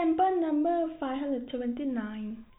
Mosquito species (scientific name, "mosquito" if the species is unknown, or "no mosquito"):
no mosquito